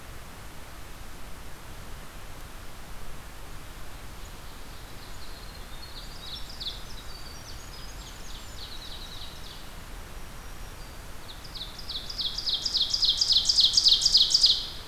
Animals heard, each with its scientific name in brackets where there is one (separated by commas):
Ovenbird (Seiurus aurocapilla), Black-throated Green Warbler (Setophaga virens)